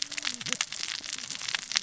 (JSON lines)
{"label": "biophony, cascading saw", "recorder": "SoundTrap 600 or HydroMoth"}